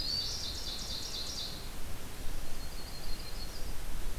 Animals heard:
Yellow-rumped Warbler (Setophaga coronata), Red-eyed Vireo (Vireo olivaceus), Black-throated Green Warbler (Setophaga virens), Ovenbird (Seiurus aurocapilla)

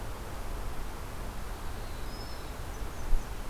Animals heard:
Black-throated Blue Warbler (Setophaga caerulescens)

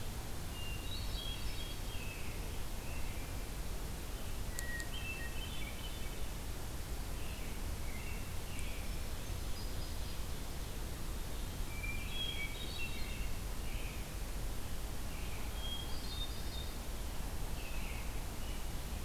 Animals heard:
American Robin (Turdus migratorius), Hermit Thrush (Catharus guttatus)

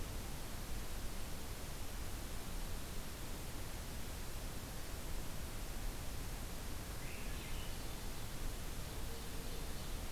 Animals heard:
Swainson's Thrush (Catharus ustulatus), Ovenbird (Seiurus aurocapilla)

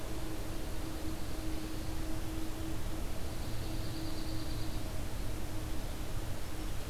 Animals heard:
Dark-eyed Junco (Junco hyemalis)

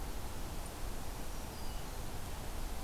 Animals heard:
Black-throated Green Warbler (Setophaga virens)

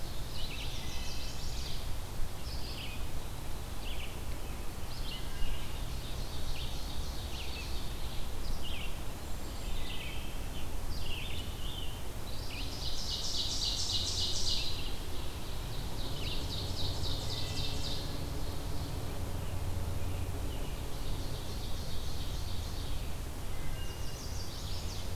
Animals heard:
Red-eyed Vireo (Vireo olivaceus), Wood Thrush (Hylocichla mustelina), Ovenbird (Seiurus aurocapilla), Scarlet Tanager (Piranga olivacea), Chestnut-sided Warbler (Setophaga pensylvanica)

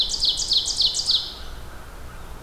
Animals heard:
Ovenbird (Seiurus aurocapilla), American Crow (Corvus brachyrhynchos)

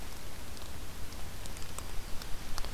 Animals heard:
Yellow-rumped Warbler (Setophaga coronata)

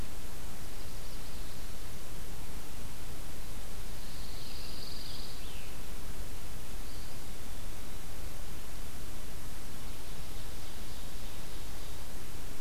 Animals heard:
Scarlet Tanager (Piranga olivacea), Pine Warbler (Setophaga pinus), Ovenbird (Seiurus aurocapilla), Eastern Wood-Pewee (Contopus virens)

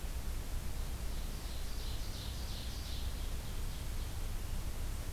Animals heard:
Ovenbird (Seiurus aurocapilla)

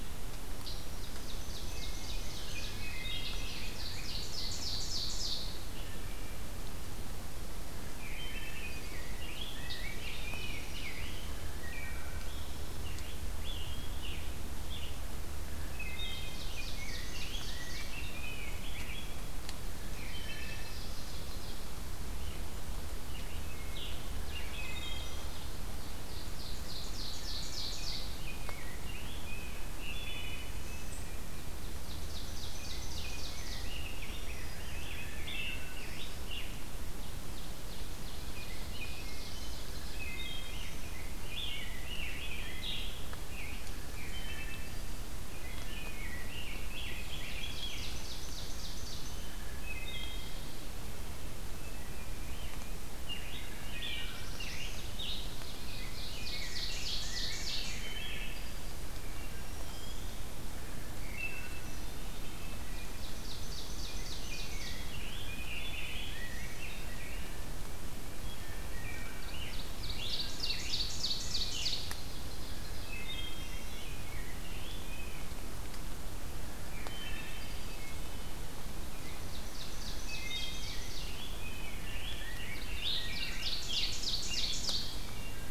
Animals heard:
Ovenbird (Seiurus aurocapilla), Black-throated Green Warbler (Setophaga virens), Rose-breasted Grosbeak (Pheucticus ludovicianus), Eastern Wood-Pewee (Contopus virens), Black-throated Blue Warbler (Setophaga caerulescens), Wood Thrush (Hylocichla mustelina), Scarlet Tanager (Piranga olivacea)

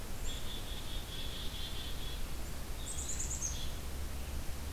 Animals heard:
Eastern Wood-Pewee (Contopus virens), Black-capped Chickadee (Poecile atricapillus)

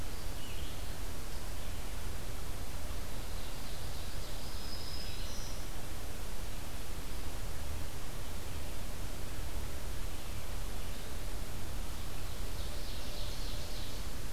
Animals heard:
Black-throated Green Warbler (Setophaga virens), Ovenbird (Seiurus aurocapilla)

